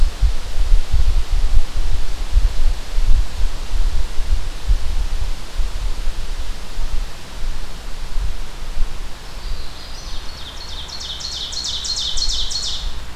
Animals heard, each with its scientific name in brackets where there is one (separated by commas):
Magnolia Warbler (Setophaga magnolia), Ovenbird (Seiurus aurocapilla)